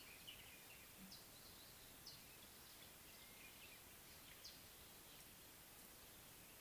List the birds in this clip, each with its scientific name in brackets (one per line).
Scarlet-chested Sunbird (Chalcomitra senegalensis)